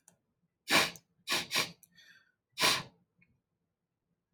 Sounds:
Sniff